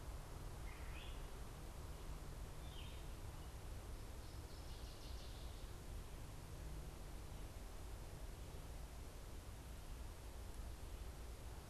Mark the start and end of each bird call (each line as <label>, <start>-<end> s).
Great Crested Flycatcher (Myiarchus crinitus), 0.6-1.4 s
Yellow-throated Vireo (Vireo flavifrons), 2.5-3.2 s
Northern Waterthrush (Parkesia noveboracensis), 4.0-5.8 s